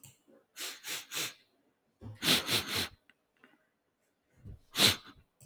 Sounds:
Sniff